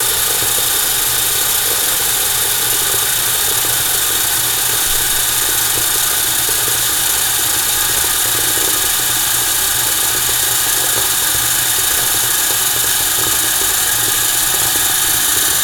Can water be heard bubbling?
yes